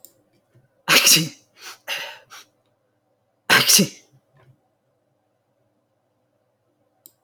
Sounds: Sneeze